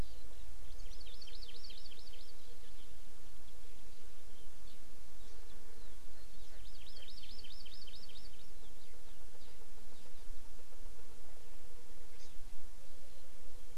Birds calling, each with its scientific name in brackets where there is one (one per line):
Hawaii Amakihi (Chlorodrepanis virens)